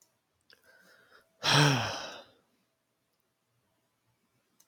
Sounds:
Sigh